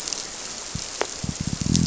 {"label": "biophony", "recorder": "SoundTrap 300"}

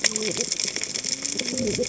{"label": "biophony, cascading saw", "recorder": "HydroMoth"}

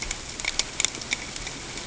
{"label": "ambient", "recorder": "HydroMoth"}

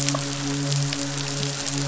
{"label": "biophony, midshipman", "recorder": "SoundTrap 500"}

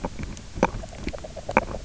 {"label": "biophony, knock croak", "recorder": "SoundTrap 300"}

